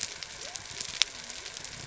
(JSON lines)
{"label": "biophony", "recorder": "SoundTrap 300"}